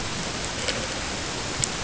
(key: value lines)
label: ambient
recorder: HydroMoth